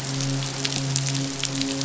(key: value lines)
label: biophony, midshipman
recorder: SoundTrap 500